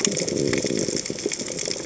{"label": "biophony", "recorder": "HydroMoth"}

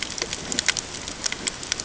{"label": "ambient", "recorder": "HydroMoth"}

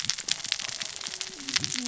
{"label": "biophony, cascading saw", "recorder": "SoundTrap 600 or HydroMoth"}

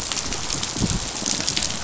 {"label": "biophony, rattle response", "recorder": "SoundTrap 500"}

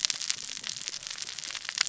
{"label": "biophony, cascading saw", "recorder": "SoundTrap 600 or HydroMoth"}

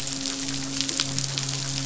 {"label": "biophony, midshipman", "recorder": "SoundTrap 500"}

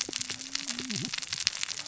{"label": "biophony, cascading saw", "recorder": "SoundTrap 600 or HydroMoth"}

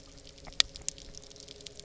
{"label": "anthrophony, boat engine", "recorder": "SoundTrap 300"}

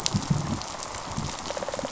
{"label": "biophony, rattle response", "recorder": "SoundTrap 500"}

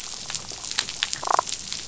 {"label": "biophony, damselfish", "recorder": "SoundTrap 500"}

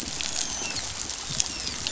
{"label": "biophony, dolphin", "recorder": "SoundTrap 500"}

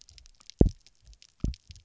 {"label": "biophony, double pulse", "recorder": "SoundTrap 300"}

